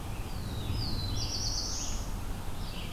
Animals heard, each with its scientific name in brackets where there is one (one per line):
Black-throated Blue Warbler (Setophaga caerulescens)
Red-eyed Vireo (Vireo olivaceus)